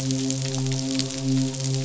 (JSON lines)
{"label": "biophony, midshipman", "recorder": "SoundTrap 500"}